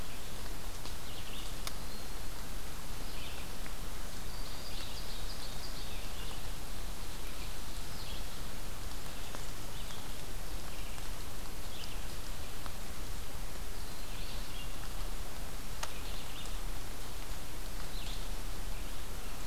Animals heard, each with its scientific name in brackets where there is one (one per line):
Ovenbird (Seiurus aurocapilla)
Red-eyed Vireo (Vireo olivaceus)